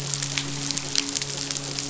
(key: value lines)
label: biophony, midshipman
recorder: SoundTrap 500